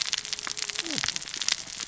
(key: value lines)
label: biophony, cascading saw
recorder: SoundTrap 600 or HydroMoth